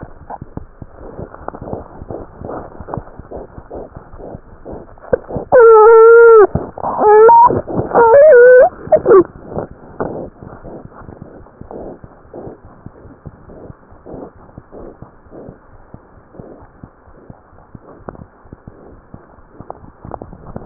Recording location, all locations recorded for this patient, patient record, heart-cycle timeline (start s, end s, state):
aortic valve (AV)
aortic valve (AV)+pulmonary valve (PV)+tricuspid valve (TV)+mitral valve (MV)
#Age: Infant
#Sex: Male
#Height: 69.0 cm
#Weight: 7.67 kg
#Pregnancy status: False
#Murmur: Absent
#Murmur locations: nan
#Most audible location: nan
#Systolic murmur timing: nan
#Systolic murmur shape: nan
#Systolic murmur grading: nan
#Systolic murmur pitch: nan
#Systolic murmur quality: nan
#Diastolic murmur timing: nan
#Diastolic murmur shape: nan
#Diastolic murmur grading: nan
#Diastolic murmur pitch: nan
#Diastolic murmur quality: nan
#Outcome: Abnormal
#Campaign: 2015 screening campaign
0.00	13.38	unannotated
13.38	13.45	diastole
13.45	13.54	S1
13.54	13.66	systole
13.66	13.76	S2
13.76	13.91	diastole
13.91	13.97	S1
13.97	14.11	systole
14.11	14.17	S2
14.17	14.34	diastole
14.34	14.41	S1
14.41	14.55	systole
14.55	14.61	S2
14.61	14.80	diastole
14.80	14.86	S1
14.86	15.00	systole
15.00	15.06	S2
15.06	15.28	diastole
15.28	15.40	S1
15.40	15.47	systole
15.47	15.54	S2
15.54	15.72	diastole
15.72	15.80	S1
15.80	15.92	systole
15.92	16.02	S2
16.02	16.14	diastole
16.14	16.23	S1
16.23	16.38	systole
16.38	16.48	S2
16.48	16.60	diastole
16.60	16.68	S1
16.68	16.82	systole
16.82	16.88	S2
16.88	17.04	diastole
17.04	17.14	S1
17.14	17.28	systole
17.28	17.38	S2
17.38	17.54	diastole
17.54	17.66	S1
17.66	17.73	systole
17.73	17.82	S2
17.82	17.96	diastole
17.96	18.06	S1
18.06	18.18	systole
18.18	18.28	S2
18.28	18.43	diastole
18.43	18.52	S1
18.52	18.66	systole
18.66	18.76	S2
18.76	18.88	diastole
18.88	19.01	S1
19.01	19.12	systole
19.12	19.19	S2
19.19	19.28	diastole
19.28	20.66	unannotated